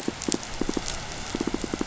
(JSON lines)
{"label": "biophony, pulse", "recorder": "SoundTrap 500"}
{"label": "anthrophony, boat engine", "recorder": "SoundTrap 500"}